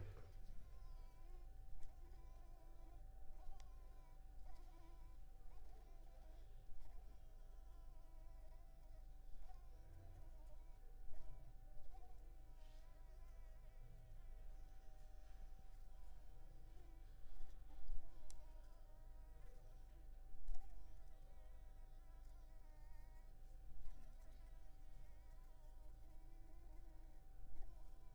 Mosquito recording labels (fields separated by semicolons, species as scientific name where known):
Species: Anopheles arabiensis; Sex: female; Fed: unfed; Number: one; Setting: cup